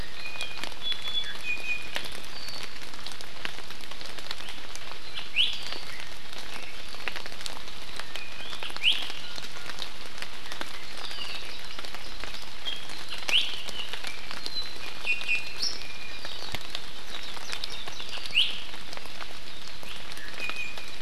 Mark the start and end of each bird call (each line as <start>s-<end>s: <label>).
0.0s-1.9s: Iiwi (Drepanis coccinea)
5.0s-5.6s: Iiwi (Drepanis coccinea)
8.8s-9.8s: Iiwi (Drepanis coccinea)
13.1s-13.5s: Iiwi (Drepanis coccinea)
15.0s-16.2s: Iiwi (Drepanis coccinea)
18.1s-18.5s: Iiwi (Drepanis coccinea)
20.1s-21.0s: Iiwi (Drepanis coccinea)